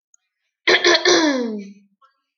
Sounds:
Throat clearing